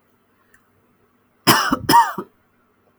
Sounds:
Cough